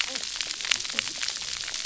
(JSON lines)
{"label": "biophony, cascading saw", "recorder": "SoundTrap 300"}